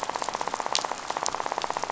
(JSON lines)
{"label": "biophony, rattle", "recorder": "SoundTrap 500"}